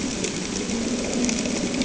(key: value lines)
label: anthrophony, boat engine
recorder: HydroMoth